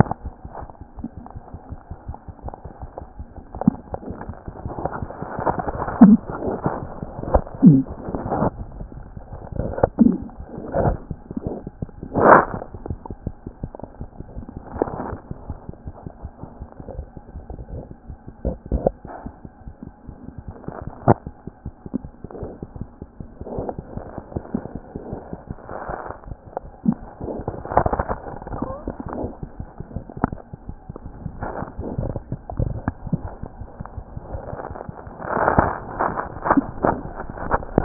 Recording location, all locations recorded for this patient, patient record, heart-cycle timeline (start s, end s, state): mitral valve (MV)
aortic valve (AV)+mitral valve (MV)
#Age: Infant
#Sex: Female
#Height: 49.0 cm
#Weight: 4.6 kg
#Pregnancy status: False
#Murmur: Absent
#Murmur locations: nan
#Most audible location: nan
#Systolic murmur timing: nan
#Systolic murmur shape: nan
#Systolic murmur grading: nan
#Systolic murmur pitch: nan
#Systolic murmur quality: nan
#Diastolic murmur timing: nan
#Diastolic murmur shape: nan
#Diastolic murmur grading: nan
#Diastolic murmur pitch: nan
#Diastolic murmur quality: nan
#Outcome: Normal
#Campaign: 2014 screening campaign
0.00	1.35	unannotated
1.35	1.40	S1
1.40	1.53	systole
1.53	1.57	S2
1.57	1.70	diastole
1.70	1.76	S1
1.76	1.90	systole
1.90	1.95	S2
1.95	2.08	diastole
2.08	2.13	S1
2.13	2.28	systole
2.28	2.33	S2
2.33	2.45	diastole
2.45	2.50	S1
2.50	2.65	systole
2.65	2.70	S2
2.70	2.82	diastole
2.82	2.88	S1
2.88	3.01	systole
3.01	3.06	S2
3.06	3.20	diastole
3.20	3.25	S1
3.25	3.36	systole
3.36	3.41	S2
3.41	3.54	diastole
3.54	37.84	unannotated